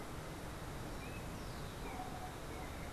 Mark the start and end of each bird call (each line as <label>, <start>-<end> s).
Yellow-backed Oriole (Icterus chrysater), 0.0-2.9 s